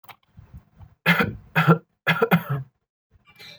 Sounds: Cough